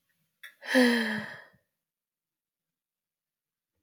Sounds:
Sigh